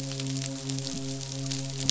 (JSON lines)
{"label": "biophony, midshipman", "recorder": "SoundTrap 500"}